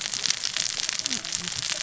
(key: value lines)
label: biophony, cascading saw
recorder: SoundTrap 600 or HydroMoth